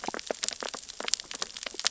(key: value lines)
label: biophony, sea urchins (Echinidae)
recorder: SoundTrap 600 or HydroMoth